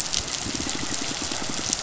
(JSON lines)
{"label": "biophony, pulse", "recorder": "SoundTrap 500"}